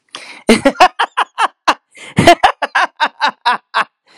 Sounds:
Laughter